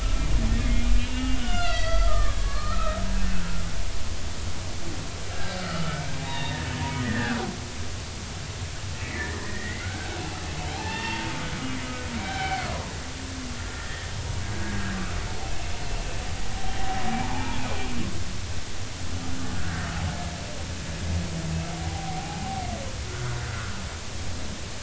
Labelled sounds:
0.6	3.6	humpback whale, 1.1 to 4.8 kHz
5.3	6.6	humpback whale, 0.80 to 3.9 kHz
7.0	7.4	humpback whale, 1.3 to 2.0 kHz
9.4	10.4	humpback whale, 1.3 to 2.1 kHz
10.7	11.3	humpback whale, 0.80 to 2.8 kHz
12.2	12.7	humpback whale, 0.80 to 3.2 kHz
13.7	14.9	humpback whale, 1.4 to 2.0 kHz
17.2	17.6	humpback whale, 0.80 to 1.0 kHz
19.5	19.9	humpback whale, 1.4 to 1.7 kHz
21.8	23.8	humpback whale, 0.80 to 1.6 kHz

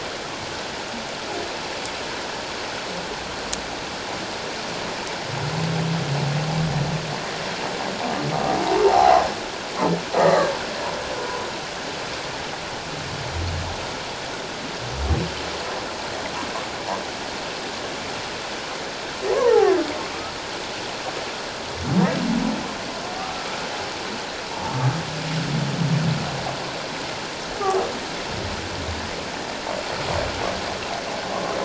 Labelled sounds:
8.8	9.2	humpback whale, 0.78 to 0.94 kHz
10.2	10.5	humpback whale, 1.6 to 2.1 kHz
11.1	11.4	humpback whale, 1.4 to 1.5 kHz
19.3	19.7	humpback whale, 0.78 to 1.4 kHz

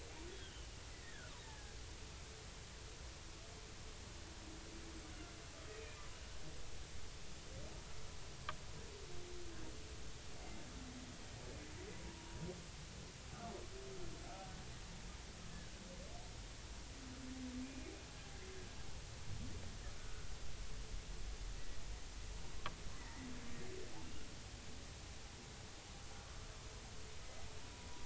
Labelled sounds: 0.3	0.7	humpback whale, 2.8 to 3.5 kHz
1.0	1.7	humpback whale, 1.3 to 2.0 kHz
5.7	6.0	humpback whale, 2.2 to 2.6 kHz
11.9	12.4	humpback whale, 0.90 to 1.1 kHz
17.6	17.9	humpback whale, 2.2 to 2.5 kHz
20.0	20.2	humpback whale, 1.4 to 1.6 kHz
23.0	23.3	humpback whale, 1.8 to 2.0 kHz
27.2	27.5	humpback whale, 2.0 to 2.1 kHz

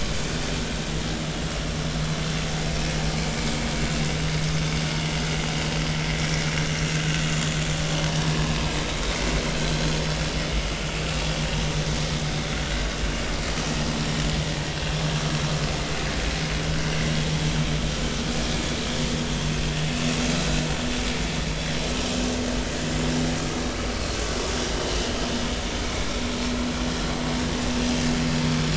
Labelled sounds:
20.4	20.6	vessel noise, 3.8 to 4.0 kHz

